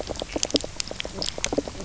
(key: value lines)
label: biophony, knock croak
recorder: SoundTrap 300